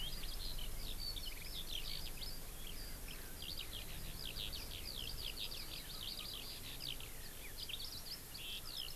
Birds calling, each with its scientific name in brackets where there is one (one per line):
Eurasian Skylark (Alauda arvensis)